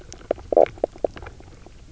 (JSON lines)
{"label": "biophony, knock croak", "recorder": "SoundTrap 300"}